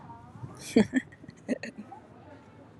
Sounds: Laughter